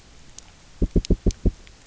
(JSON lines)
{"label": "biophony, knock", "recorder": "SoundTrap 300"}